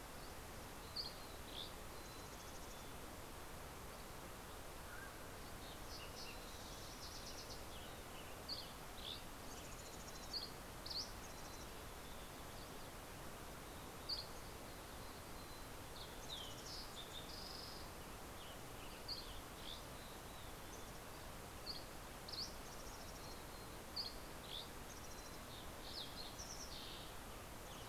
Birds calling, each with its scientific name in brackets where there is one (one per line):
Mountain Quail (Oreortyx pictus)
Mountain Chickadee (Poecile gambeli)
Western Tanager (Piranga ludoviciana)
Fox Sparrow (Passerella iliaca)
Dusky Flycatcher (Empidonax oberholseri)